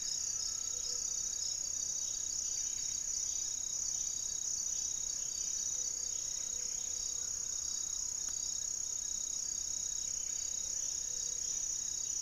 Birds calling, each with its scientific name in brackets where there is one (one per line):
Mealy Parrot (Amazona farinosa)
unidentified bird
Gray-fronted Dove (Leptotila rufaxilla)
Little Tinamou (Crypturellus soui)
Amazonian Trogon (Trogon ramonianus)
Buff-breasted Wren (Cantorchilus leucotis)